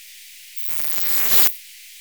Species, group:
Poecilimon artedentatus, Orthoptera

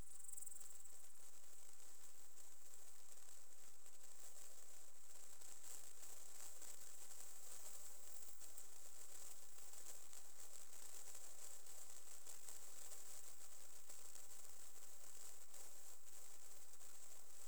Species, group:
Tettigonia cantans, Orthoptera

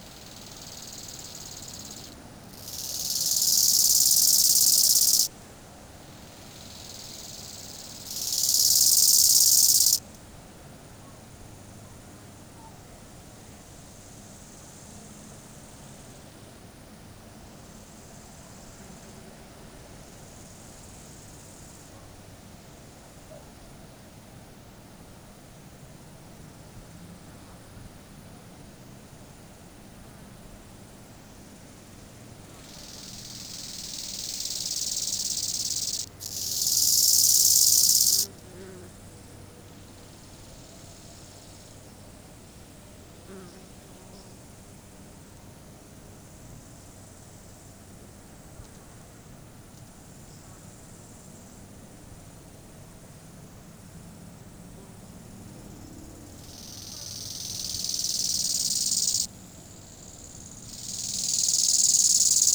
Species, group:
Chorthippus biguttulus, Orthoptera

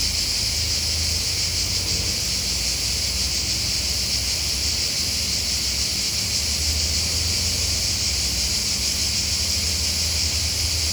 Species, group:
Cicada orni, Cicadidae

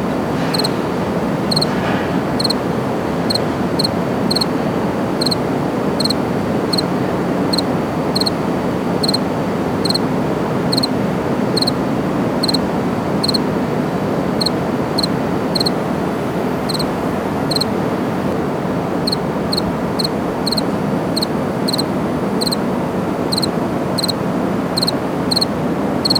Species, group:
Acheta domesticus, Orthoptera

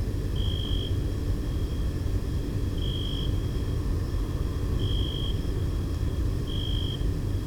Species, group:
Oecanthus pellucens, Orthoptera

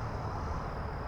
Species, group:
Magicicada cassini, Cicadidae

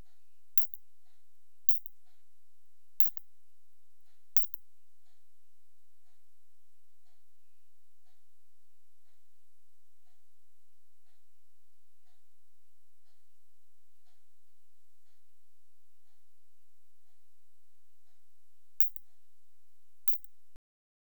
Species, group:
Isophya lemnotica, Orthoptera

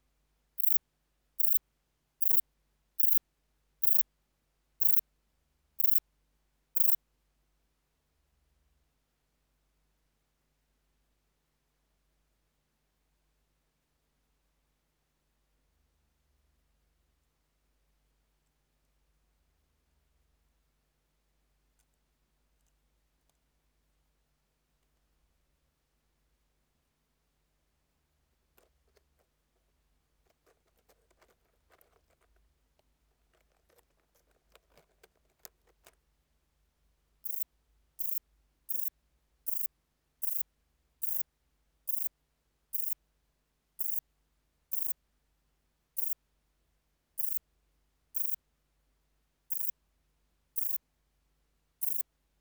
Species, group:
Rhacocleis poneli, Orthoptera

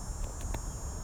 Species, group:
Neotibicen canicularis, Cicadidae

